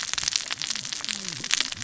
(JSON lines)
{"label": "biophony, cascading saw", "recorder": "SoundTrap 600 or HydroMoth"}